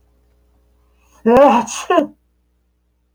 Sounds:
Sneeze